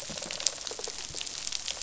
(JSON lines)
{"label": "biophony, rattle response", "recorder": "SoundTrap 500"}